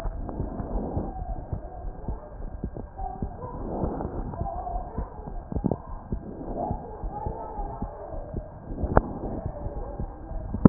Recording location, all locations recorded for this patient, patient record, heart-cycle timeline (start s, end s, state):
pulmonary valve (PV)
aortic valve (AV)+pulmonary valve (PV)+tricuspid valve (TV)+mitral valve (MV)
#Age: Child
#Sex: Male
#Height: 118.0 cm
#Weight: 20.5 kg
#Pregnancy status: False
#Murmur: Absent
#Murmur locations: nan
#Most audible location: nan
#Systolic murmur timing: nan
#Systolic murmur shape: nan
#Systolic murmur grading: nan
#Systolic murmur pitch: nan
#Systolic murmur quality: nan
#Diastolic murmur timing: nan
#Diastolic murmur shape: nan
#Diastolic murmur grading: nan
#Diastolic murmur pitch: nan
#Diastolic murmur quality: nan
#Outcome: Normal
#Campaign: 2015 screening campaign
0.00	1.83	unannotated
1.83	1.94	S1
1.94	2.04	systole
2.04	2.18	S2
2.18	2.40	diastole
2.40	2.50	S1
2.50	2.60	systole
2.60	2.72	S2
2.72	3.00	diastole
3.00	3.10	S1
3.10	3.22	systole
3.22	3.32	S2
3.32	3.56	diastole
3.56	3.70	S1
3.70	3.80	systole
3.80	3.94	S2
3.94	4.16	diastole
4.16	4.28	S1
4.28	4.38	systole
4.38	4.50	S2
4.50	4.72	diastole
4.72	4.86	S1
4.86	4.96	systole
4.96	5.08	S2
5.08	5.30	diastole
5.30	5.42	S1
5.42	5.53	systole
5.53	5.64	S2
5.64	5.87	diastole
5.87	5.98	S1
5.98	6.09	systole
6.09	6.22	S2
6.22	6.46	diastole
6.46	6.58	S1
6.58	6.68	systole
6.68	6.80	S2
6.80	6.99	diastole
6.99	7.12	S1
7.12	7.22	systole
7.22	7.36	S2
7.36	7.56	diastole
7.56	7.70	S1
7.70	7.78	systole
7.78	7.90	S2
7.90	8.12	diastole
8.12	8.24	S1
8.24	8.34	systole
8.34	8.44	S2
8.44	10.69	unannotated